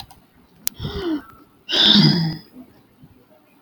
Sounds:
Sigh